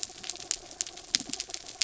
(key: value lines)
label: anthrophony, mechanical
recorder: SoundTrap 300